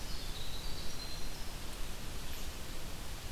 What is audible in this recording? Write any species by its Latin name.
Troglodytes hiemalis, Tamias striatus, Vireo olivaceus